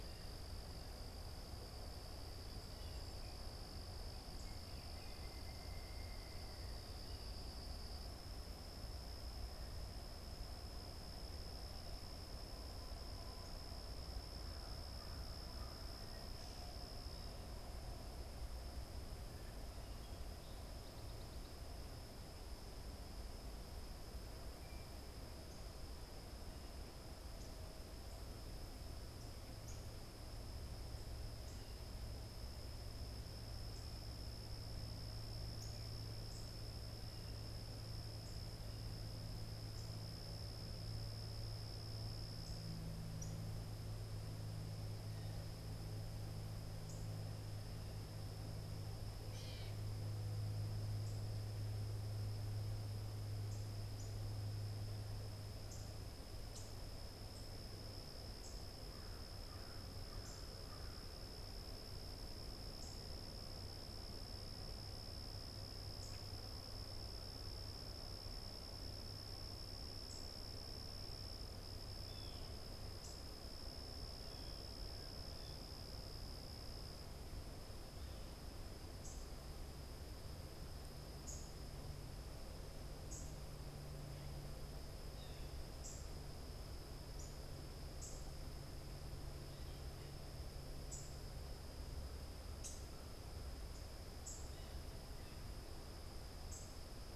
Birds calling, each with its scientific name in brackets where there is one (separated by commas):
Northern Cardinal (Cardinalis cardinalis), Pileated Woodpecker (Dryocopus pileatus), unidentified bird, American Crow (Corvus brachyrhynchos), Gray Catbird (Dumetella carolinensis)